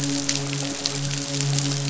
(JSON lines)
{"label": "biophony, midshipman", "recorder": "SoundTrap 500"}